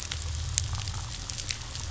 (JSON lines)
{"label": "anthrophony, boat engine", "recorder": "SoundTrap 500"}